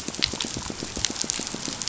{"label": "biophony, pulse", "recorder": "SoundTrap 500"}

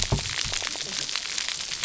{"label": "biophony, cascading saw", "recorder": "SoundTrap 300"}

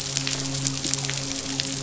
{"label": "biophony, midshipman", "recorder": "SoundTrap 500"}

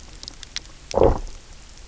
{"label": "biophony, low growl", "recorder": "SoundTrap 300"}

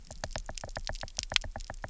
{"label": "biophony, knock", "recorder": "SoundTrap 300"}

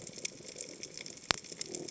{"label": "biophony", "recorder": "HydroMoth"}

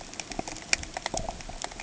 {"label": "ambient", "recorder": "HydroMoth"}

